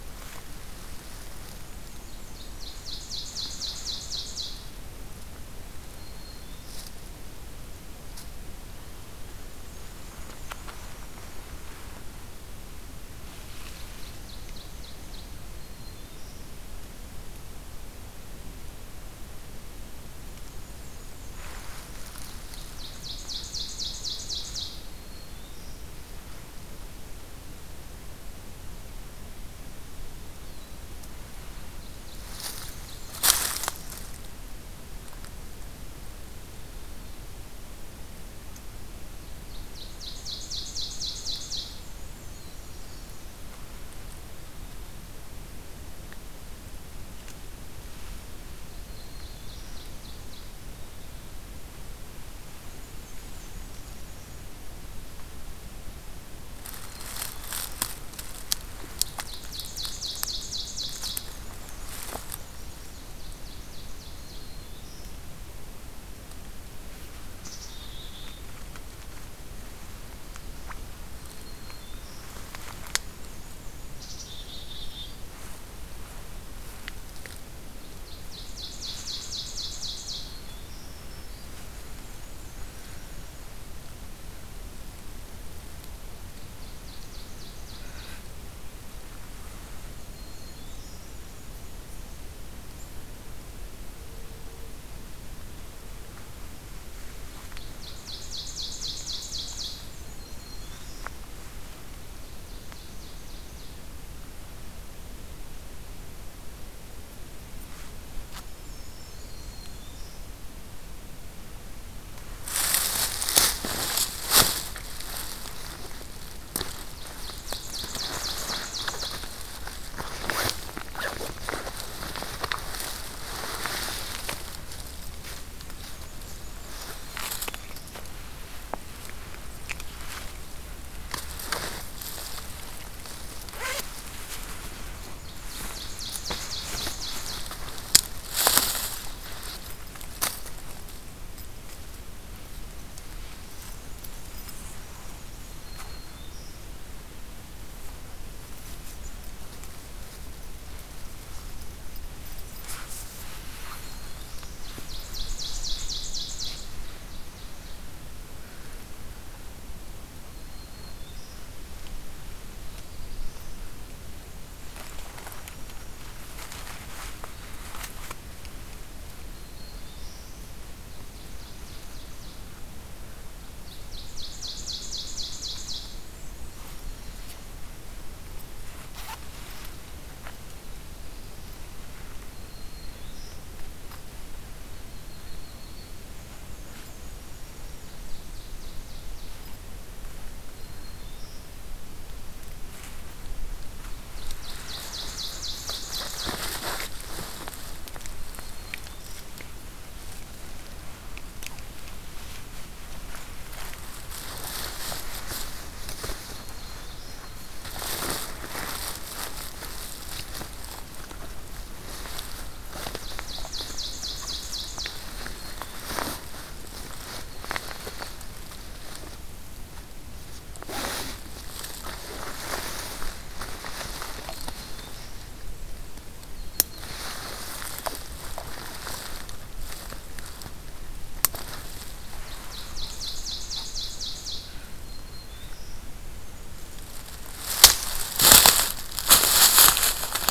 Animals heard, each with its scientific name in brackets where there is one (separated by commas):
Black-throated Blue Warbler (Setophaga caerulescens), Black-capped Chickadee (Poecile atricapillus), Ovenbird (Seiurus aurocapilla), Yellow-rumped Warbler (Setophaga coronata), Black-and-white Warbler (Mniotilta varia), Black-throated Green Warbler (Setophaga virens)